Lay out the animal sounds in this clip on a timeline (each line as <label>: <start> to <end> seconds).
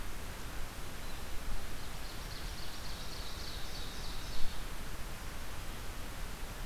Ovenbird (Seiurus aurocapilla): 1.5 to 4.7 seconds